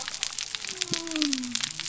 {"label": "biophony", "recorder": "SoundTrap 300"}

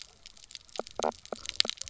{"label": "biophony, knock croak", "recorder": "SoundTrap 300"}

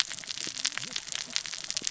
{"label": "biophony, cascading saw", "recorder": "SoundTrap 600 or HydroMoth"}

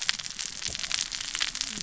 {"label": "biophony, cascading saw", "recorder": "SoundTrap 600 or HydroMoth"}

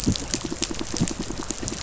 {"label": "biophony, pulse", "recorder": "SoundTrap 500"}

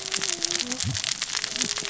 {"label": "biophony, cascading saw", "recorder": "SoundTrap 600 or HydroMoth"}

